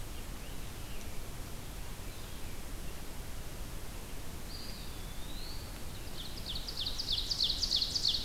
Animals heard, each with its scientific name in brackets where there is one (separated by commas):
Eastern Wood-Pewee (Contopus virens), Scarlet Tanager (Piranga olivacea), Ovenbird (Seiurus aurocapilla), Red-eyed Vireo (Vireo olivaceus)